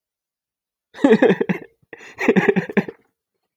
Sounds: Laughter